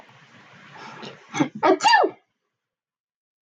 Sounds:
Sneeze